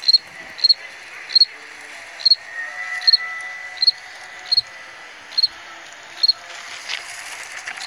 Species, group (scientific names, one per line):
Gryllus veletis
Orthoptera